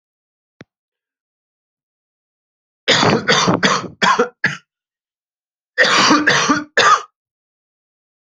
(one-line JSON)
{"expert_labels": [{"quality": "ok", "cough_type": "dry", "dyspnea": false, "wheezing": false, "stridor": false, "choking": false, "congestion": false, "nothing": true, "diagnosis": "COVID-19", "severity": "mild"}], "age": 30, "gender": "male", "respiratory_condition": false, "fever_muscle_pain": false, "status": "symptomatic"}